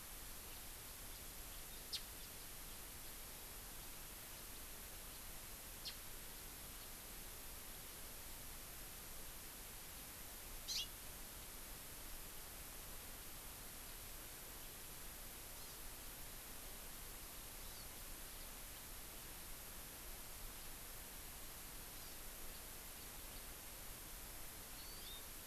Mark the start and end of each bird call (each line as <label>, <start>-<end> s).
Japanese Bush Warbler (Horornis diphone), 1.9-2.0 s
Japanese Bush Warbler (Horornis diphone), 5.8-5.9 s
Hawaii Amakihi (Chlorodrepanis virens), 10.7-10.9 s
Hawaii Amakihi (Chlorodrepanis virens), 15.5-15.8 s
Hawaii Amakihi (Chlorodrepanis virens), 17.6-17.8 s
Hawaii Amakihi (Chlorodrepanis virens), 22.0-22.1 s
Hawaii Amakihi (Chlorodrepanis virens), 24.8-25.2 s